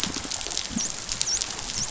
{"label": "biophony, dolphin", "recorder": "SoundTrap 500"}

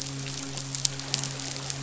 {"label": "biophony, midshipman", "recorder": "SoundTrap 500"}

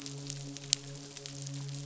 {"label": "biophony, midshipman", "recorder": "SoundTrap 500"}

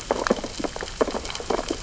{"label": "biophony, sea urchins (Echinidae)", "recorder": "SoundTrap 600 or HydroMoth"}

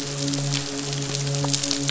{"label": "biophony, midshipman", "recorder": "SoundTrap 500"}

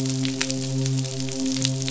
{"label": "biophony, midshipman", "recorder": "SoundTrap 500"}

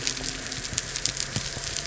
{"label": "anthrophony, boat engine", "recorder": "SoundTrap 300"}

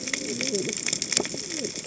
{"label": "biophony, cascading saw", "recorder": "HydroMoth"}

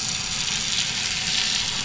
{"label": "anthrophony, boat engine", "recorder": "SoundTrap 500"}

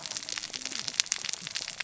{"label": "biophony, cascading saw", "recorder": "SoundTrap 600 or HydroMoth"}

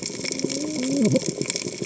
{"label": "biophony, cascading saw", "recorder": "HydroMoth"}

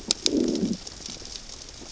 {"label": "biophony, growl", "recorder": "SoundTrap 600 or HydroMoth"}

